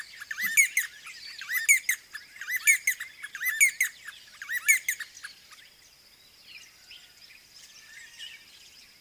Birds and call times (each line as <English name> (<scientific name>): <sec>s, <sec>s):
D'Arnaud's Barbet (Trachyphonus darnaudii): 1.8s, 4.7s